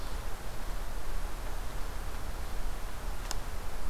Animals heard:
forest ambience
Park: Acadia National Park